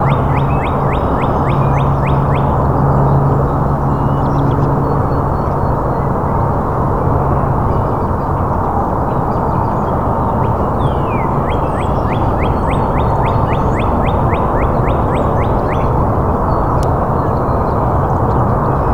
What animal is present?
bird